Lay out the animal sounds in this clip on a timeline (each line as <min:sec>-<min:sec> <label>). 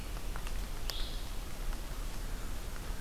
0:00.6-0:03.0 Red-eyed Vireo (Vireo olivaceus)
0:02.2-0:03.0 American Crow (Corvus brachyrhynchos)